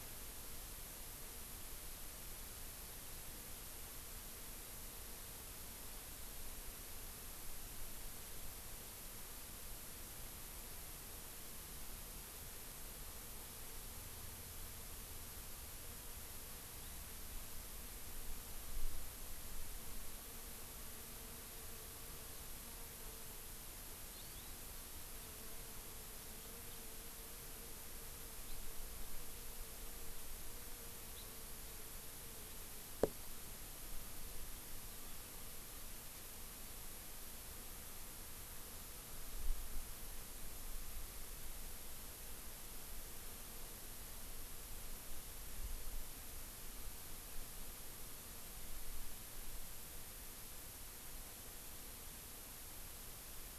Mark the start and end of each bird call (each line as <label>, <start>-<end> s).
Hawaii Amakihi (Chlorodrepanis virens), 24.1-24.5 s
House Finch (Haemorhous mexicanus), 26.6-26.7 s
House Finch (Haemorhous mexicanus), 28.4-28.5 s
House Finch (Haemorhous mexicanus), 31.1-31.3 s